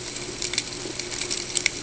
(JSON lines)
{"label": "ambient", "recorder": "HydroMoth"}